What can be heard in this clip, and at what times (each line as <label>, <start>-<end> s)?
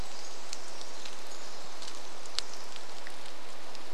Pacific Wren song, 0-4 s
rain, 0-4 s